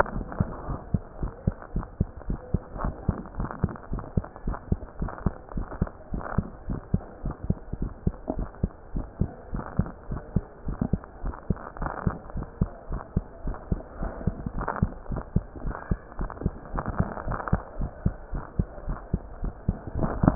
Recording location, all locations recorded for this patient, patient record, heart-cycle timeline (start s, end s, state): mitral valve (MV)
aortic valve (AV)+pulmonary valve (PV)+tricuspid valve (TV)+mitral valve (MV)
#Age: Adolescent
#Sex: Female
#Height: 156.0 cm
#Weight: 36.7 kg
#Pregnancy status: False
#Murmur: Absent
#Murmur locations: nan
#Most audible location: nan
#Systolic murmur timing: nan
#Systolic murmur shape: nan
#Systolic murmur grading: nan
#Systolic murmur pitch: nan
#Systolic murmur quality: nan
#Diastolic murmur timing: nan
#Diastolic murmur shape: nan
#Diastolic murmur grading: nan
#Diastolic murmur pitch: nan
#Diastolic murmur quality: nan
#Outcome: Abnormal
#Campaign: 2015 screening campaign
0.00	0.46	unannotated
0.46	0.68	diastole
0.68	0.78	S1
0.78	0.90	systole
0.90	1.04	S2
1.04	1.20	diastole
1.20	1.32	S1
1.32	1.44	systole
1.44	1.54	S2
1.54	1.74	diastole
1.74	1.86	S1
1.86	1.96	systole
1.96	2.08	S2
2.08	2.28	diastole
2.28	2.40	S1
2.40	2.50	systole
2.50	2.64	S2
2.64	2.82	diastole
2.82	2.94	S1
2.94	3.06	systole
3.06	3.16	S2
3.16	3.36	diastole
3.36	3.50	S1
3.50	3.60	systole
3.60	3.74	S2
3.74	3.90	diastole
3.90	4.02	S1
4.02	4.12	systole
4.12	4.28	S2
4.28	4.46	diastole
4.46	4.58	S1
4.58	4.68	systole
4.68	4.82	S2
4.82	5.00	diastole
5.00	5.10	S1
5.10	5.22	systole
5.22	5.36	S2
5.36	5.54	diastole
5.54	5.66	S1
5.66	5.78	systole
5.78	5.92	S2
5.92	6.12	diastole
6.12	6.24	S1
6.24	6.34	systole
6.34	6.46	S2
6.46	6.68	diastole
6.68	6.80	S1
6.80	6.90	systole
6.90	7.04	S2
7.04	7.24	diastole
7.24	7.34	S1
7.34	7.48	systole
7.48	7.60	S2
7.60	7.80	diastole
7.80	7.92	S1
7.92	8.06	systole
8.06	8.18	S2
8.18	8.34	diastole
8.34	8.48	S1
8.48	8.60	systole
8.60	8.70	S2
8.70	8.92	diastole
8.92	9.06	S1
9.06	9.18	systole
9.18	9.32	S2
9.32	9.52	diastole
9.52	9.64	S1
9.64	9.78	systole
9.78	9.90	S2
9.90	10.10	diastole
10.10	10.20	S1
10.20	10.32	systole
10.32	10.46	S2
10.46	10.66	diastole
10.66	10.78	S1
10.78	10.90	systole
10.90	11.04	S2
11.04	11.24	diastole
11.24	11.36	S1
11.36	11.48	systole
11.48	11.58	S2
11.58	11.80	diastole
11.80	11.92	S1
11.92	12.04	systole
12.04	12.14	S2
12.14	12.34	diastole
12.34	12.46	S1
12.46	12.58	systole
12.58	12.70	S2
12.70	12.90	diastole
12.90	13.02	S1
13.02	13.14	systole
13.14	13.24	S2
13.24	13.46	diastole
13.46	13.56	S1
13.56	13.66	systole
13.66	13.82	S2
13.82	13.98	diastole
13.98	14.12	S1
14.12	14.25	systole
14.25	14.38	S2
14.38	14.54	diastole
14.54	14.68	S1
14.68	14.80	systole
14.80	14.94	S2
14.94	15.10	diastole
15.10	15.24	S1
15.24	15.32	systole
15.32	15.44	S2
15.44	15.62	diastole
15.62	15.74	S1
15.74	15.90	systole
15.90	16.00	S2
16.00	16.18	diastole
16.18	16.30	S1
16.30	16.40	systole
16.40	16.54	S2
16.54	16.72	diastole
16.72	16.84	S1
16.84	16.98	systole
16.98	17.10	S2
17.10	17.26	diastole
17.26	17.40	S1
17.40	17.48	systole
17.48	17.60	S2
17.60	17.78	diastole
17.78	17.92	S1
17.92	18.04	systole
18.04	18.18	S2
18.18	18.34	diastole
18.34	18.44	S1
18.44	18.60	systole
18.60	18.72	S2
18.72	18.86	diastole
18.86	19.00	S1
19.00	19.12	systole
19.12	19.22	S2
19.22	19.40	diastole
19.40	19.54	S1
19.54	19.64	systole
19.64	19.76	S2
19.76	19.96	diastole
19.96	20.35	unannotated